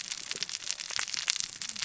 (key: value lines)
label: biophony, cascading saw
recorder: SoundTrap 600 or HydroMoth